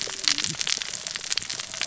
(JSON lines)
{"label": "biophony, cascading saw", "recorder": "SoundTrap 600 or HydroMoth"}